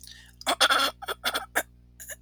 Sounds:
Throat clearing